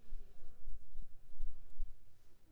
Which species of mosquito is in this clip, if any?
Anopheles arabiensis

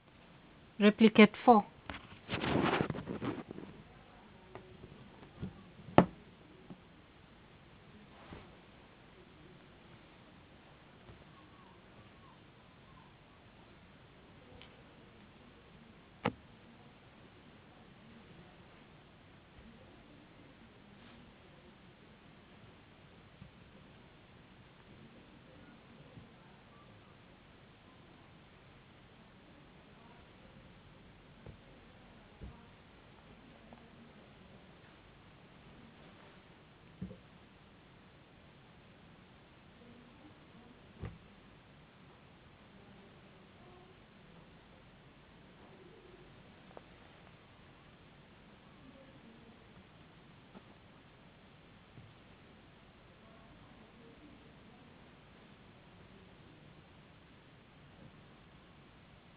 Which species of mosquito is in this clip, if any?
no mosquito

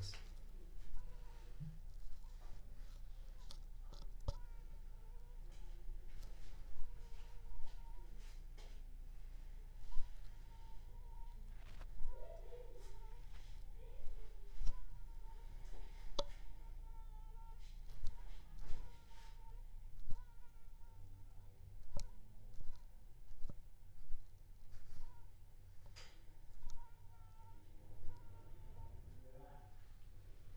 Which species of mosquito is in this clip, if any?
Aedes aegypti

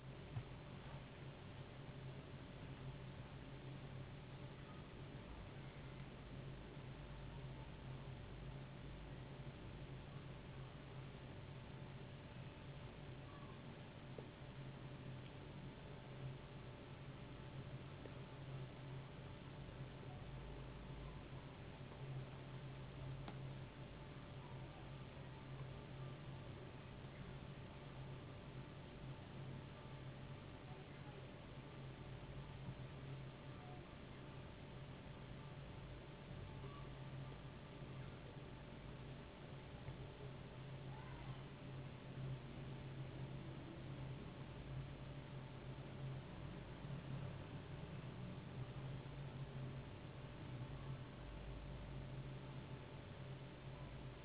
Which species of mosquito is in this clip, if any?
no mosquito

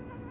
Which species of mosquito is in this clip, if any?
Anopheles funestus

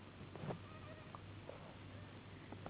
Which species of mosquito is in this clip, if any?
Anopheles gambiae s.s.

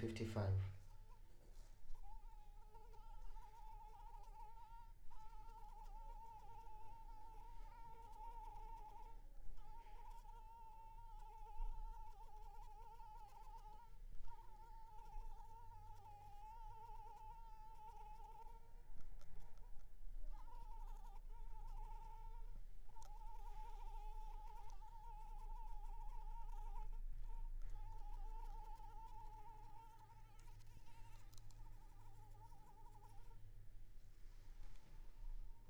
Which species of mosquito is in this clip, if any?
Anopheles arabiensis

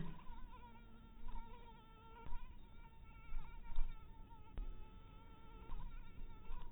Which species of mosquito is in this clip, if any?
mosquito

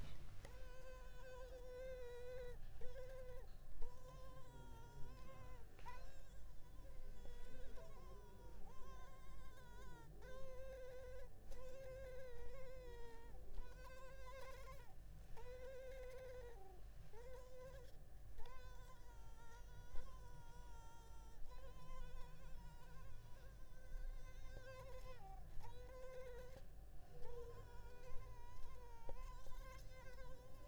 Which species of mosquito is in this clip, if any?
Culex pipiens complex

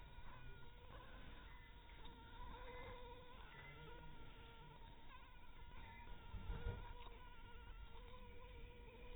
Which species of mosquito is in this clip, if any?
Anopheles dirus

